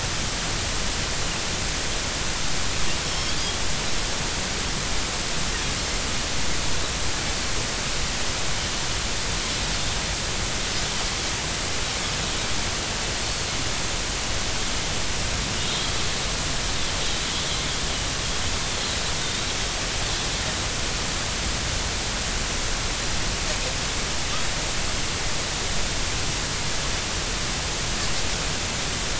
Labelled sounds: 3.0	3.4	Pacific white-sided dolphin, 3.2 to 5.5 kHz
13.2	13.5	Pacific white-sided dolphin, 4.2 to 4.5 kHz

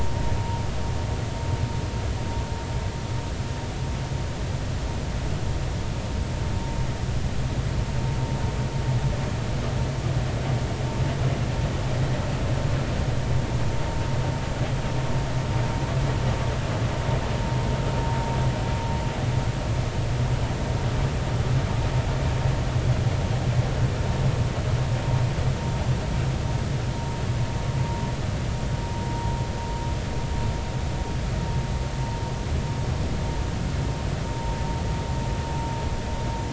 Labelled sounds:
29.1	29.3	vessel noise, 0.90 to 0.99 kHz
34.3	34.5	vessel noise, 0.86 to 0.99 kHz

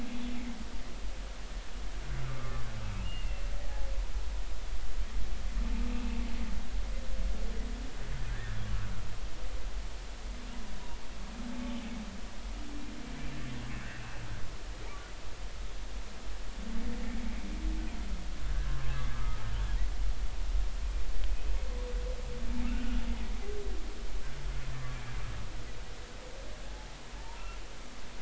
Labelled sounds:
2.2	2.6	humpback whale, 1.1 to 1.4 kHz
3.0	3.5	humpback whale, 2.7 to 3.0 kHz
5.9	6.2	humpback whale, 2.5 to 2.8 kHz
8.3	8.6	humpback whale, 1.5 to 2.0 kHz
18.5	19.4	humpback whale, 1.0 to 1.7 kHz
21.3	21.5	humpback whale, 2.5 to 2.6 kHz
22.6	23.0	humpback whale, 1.2 to 1.6 kHz

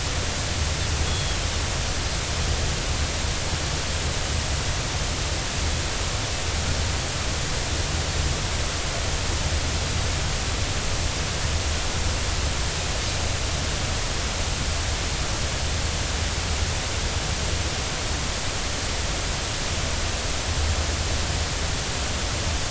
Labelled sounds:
1.1	1.4	Pacific white-sided dolphin, 3.2 to 3.4 kHz

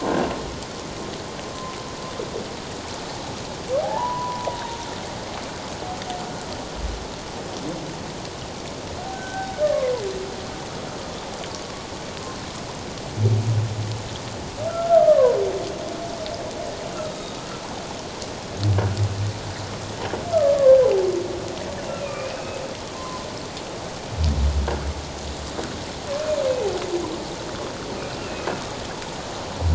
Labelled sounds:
0.0	0.3	croaking sound likely from a nearby submerged object, 1.4 to 1.7 kHz
3.8	4.8	humpback whale, 0.78 to 1.1 kHz
9.1	9.5	humpback whale, 1.5 to 1.6 kHz
14.7	15.2	humpback whale, 1.2 to 1.5 kHz
17.0	17.4	humpback whale, 3.7 to 3.8 kHz
22.0	22.6	humpback whale, 2.3 to 2.6 kHz
22.9	23.3	humpback whale, 0.97 to 1.2 kHz
28.2	28.5	humpback whale, 2.4 to 2.8 kHz

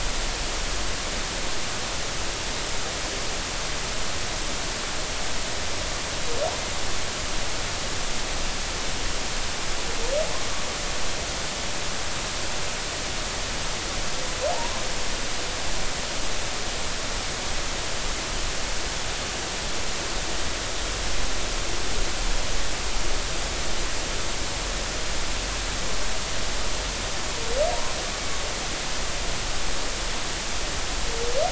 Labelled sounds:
14.5	14.8	humpback whale, 0.80 to 1.1 kHz

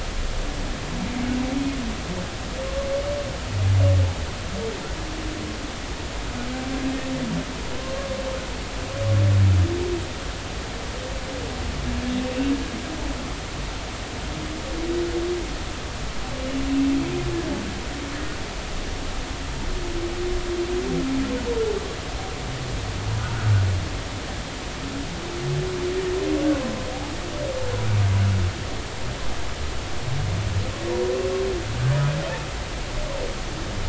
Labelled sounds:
7.8	8.1	humpback whale, 1.0 to 1.2 kHz
12.2	12.5	humpback whale, 2.6 to 2.8 kHz
23.2	23.5	humpback whale, 1.3 to 1.7 kHz

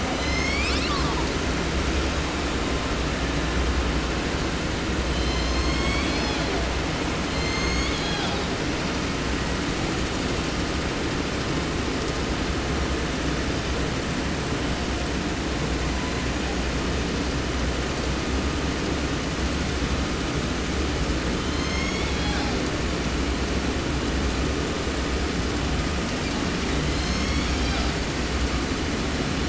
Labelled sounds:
0.0	1.4	killer whale, southern resident, 0.30 to 8.0 kHz
5.0	6.6	killer whale, southern resident, J pod, call S01, 0.30 to 8.0 kHz
7.2	8.5	killer whale, southern resident, J pod, call S01, 0.71 to 8.0 kHz
15.8	16.4	killer whale, 0.73 to 4.3 kHz
21.3	22.6	killer whale, southern resident, J pod, call S01, 0.70 to 7.6 kHz
26.2	28.1	killer whale, 0.79 to 7.0 kHz

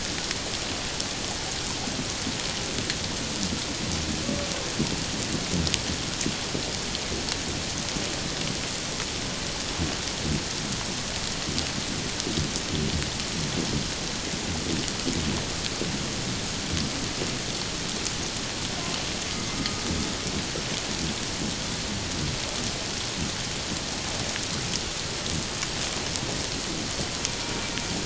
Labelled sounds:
19.3	19.8	humpback whale, 1.2 to 2.2 kHz

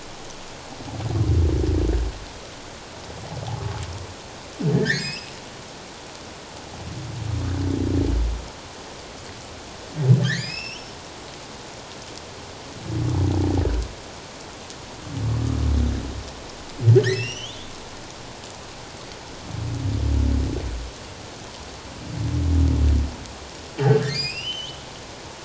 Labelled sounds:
4.7	5.3	humpback whale, 1.5 to 6.7 kHz
10.2	10.9	humpback whale, 1.5 to 5.8 kHz
17.0	17.7	humpback whale, 1.5 to 6.1 kHz
24.1	24.8	humpback whale, 2.3 to 5.5 kHz

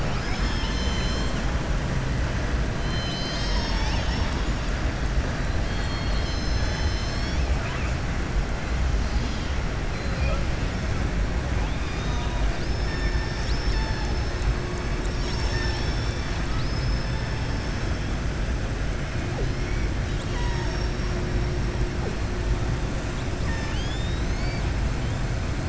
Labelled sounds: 2.8	4.4	killer whale, southern resident, 0.92 to 7.7 kHz
15.8	17.2	killer whale, southern resident, 2.7 to 6.0 kHz

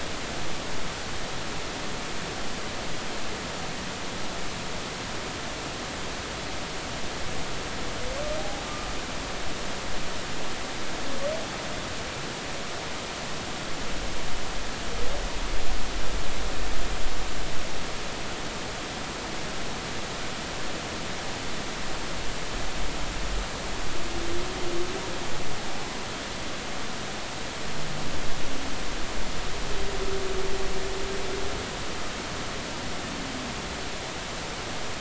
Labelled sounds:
8.4	8.6	humpback whale, 0.80 to 0.86 kHz

